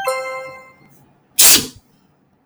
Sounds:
Sneeze